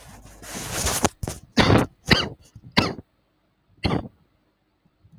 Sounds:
Cough